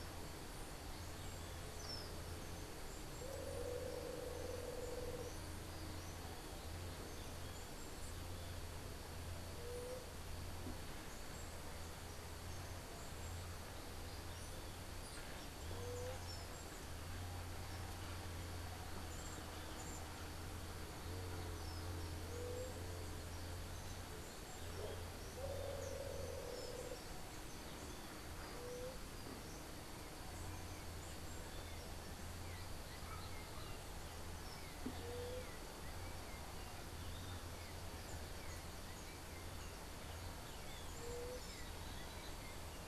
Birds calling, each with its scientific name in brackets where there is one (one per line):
Red-headed Barbet (Eubucco bourcierii)
White-tipped Dove (Leptotila verreauxi)